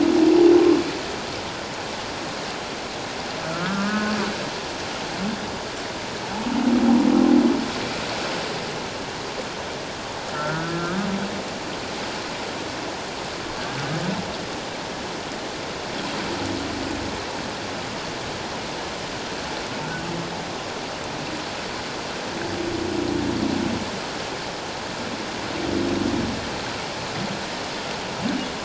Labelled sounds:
3.4	4.1	humpback whale, 1.1 to 1.8 kHz
10.3	11.0	humpback whale, 1.2 to 1.6 kHz

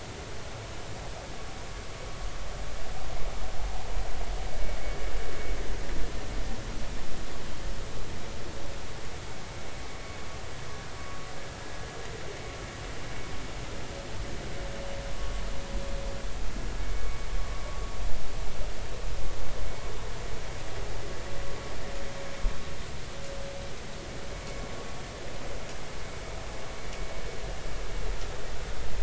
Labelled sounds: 15.1	15.4	vessel noise, 1.1 to 1.2 kHz
16.8	17.3	vessel noise, 2.2 to 2.3 kHz

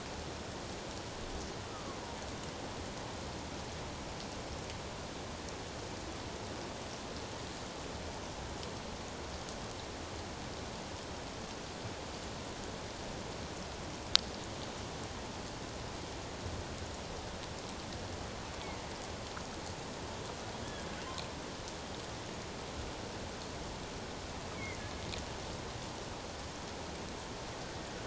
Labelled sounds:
1.6	2.0	killer whale, offshore, 1.0 to 1.4 kHz
24.5	24.8	killer whale, offshore, 2.0 to 2.4 kHz

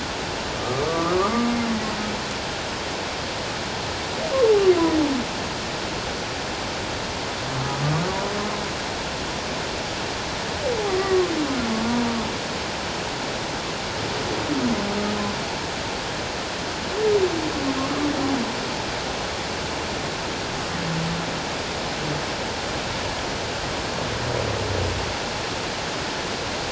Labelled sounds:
0.6	1.2	humpback whale, 1.1 to 1.3 kHz
7.5	7.8	humpback whale, 1.2 to 1.3 kHz
11.0	11.3	humpback whale, 1.0 to 1.2 kHz

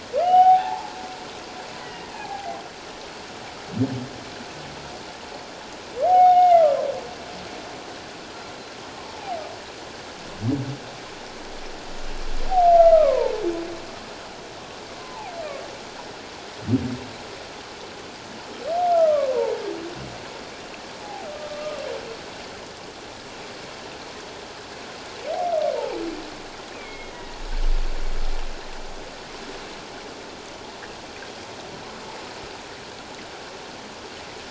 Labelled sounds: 0.2	0.9	humpback whale, 0.78 to 3.0 kHz
1.8	2.6	humpback whale, 0.78 to 3.0 kHz
6.0	6.7	humpback whale, 0.78 to 3.7 kHz
12.7	13.4	humpback whale, 0.84 to 2.1 kHz
15.0	15.3	humpback whale, 0.78 to 1.1 kHz
18.9	19.6	humpback whale, 0.81 to 1.4 kHz
21.0	21.8	humpback whale, 0.78 to 1.3 kHz
25.7	26.0	humpback whale, 0.78 to 0.97 kHz
26.7	27.4	humpback whale, 1.8 to 3.3 kHz

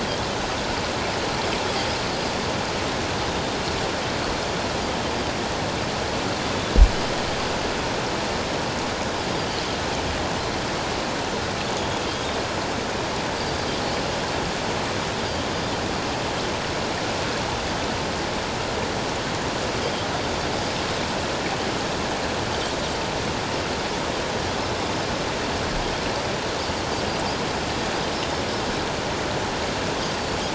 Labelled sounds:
13.4	13.7	Pacific white-sided dolphin, 4.6 to 4.9 kHz

